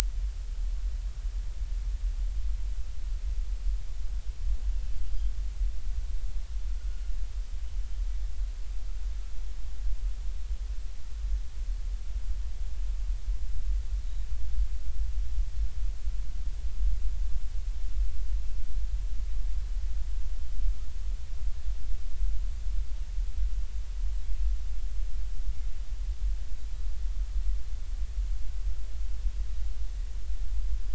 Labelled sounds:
6.8	7.0	Pacific white-sided dolphin, 1.3 to 1.5 kHz

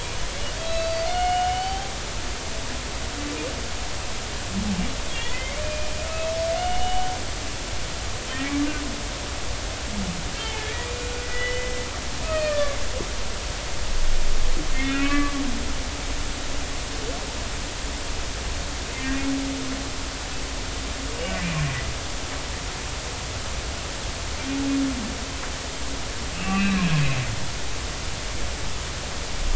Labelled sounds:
0.6	1.9	humpback whale, 0.80 to 4.7 kHz
5.1	5.9	humpback whale, 1.8 to 3.5 kHz
6.6	7.1	humpback whale, 2.8 to 3.0 kHz
10.4	10.7	humpback whale, 2.1 to 2.3 kHz
11.2	12.8	humpback whale, 1.1 to 3.0 kHz
14.7	15.3	humpback whale, 1.1 to 2.8 kHz
19.0	19.2	humpback whale, 1.8 to 1.9 kHz
26.3	26.8	humpback whale, 2.5 to 2.9 kHz

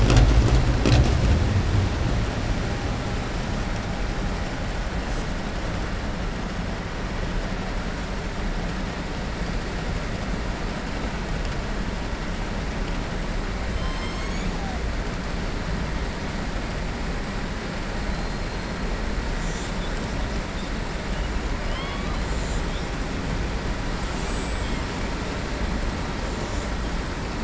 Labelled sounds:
21.6	22.2	killer whale, southern resident, 1.1 to 4.4 kHz

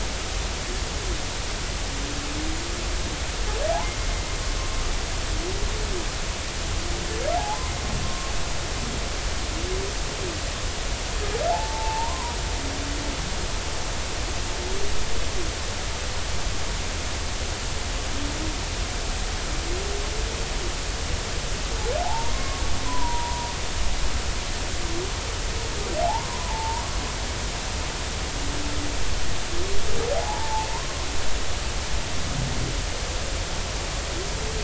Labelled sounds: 7.3	7.7	humpback whale, 0.80 to 1.1 kHz
8.0	8.3	humpback whale, 1.0 to 1.1 kHz
11.5	12.4	humpback whale, 0.80 to 1.1 kHz
22.0	23.5	humpback whale, 0.80 to 1.2 kHz
26.0	26.8	humpback whale, 0.80 to 1.2 kHz
30.1	30.7	humpback whale, 0.80 to 0.99 kHz

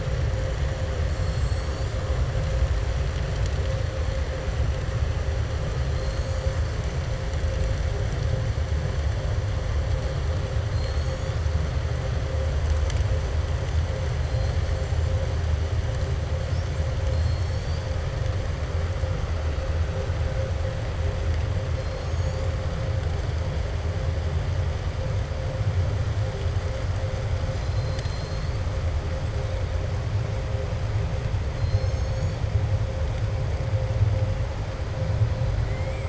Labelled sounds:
1.1	1.9	killer whale, southern resident, 4.3 to 5.4 kHz
5.9	6.3	killer whale, southern resident, 4.1 to 5.3 kHz
10.6	11.4	killer whale, southern resident, 3.6 to 7.8 kHz
17.0	17.8	killer whale, southern resident, 4.2 to 7.3 kHz
35.6	36.0	killer whale, southern resident, 1.3 to 3.3 kHz

